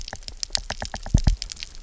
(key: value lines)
label: biophony, knock
recorder: SoundTrap 300